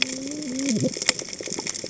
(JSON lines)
{"label": "biophony, cascading saw", "recorder": "HydroMoth"}